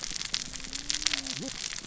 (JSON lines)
{"label": "biophony, cascading saw", "recorder": "SoundTrap 600 or HydroMoth"}